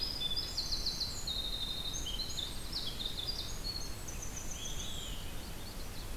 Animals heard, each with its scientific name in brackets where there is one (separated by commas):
Winter Wren (Troglodytes hiemalis), Olive-sided Flycatcher (Contopus cooperi), Magnolia Warbler (Setophaga magnolia)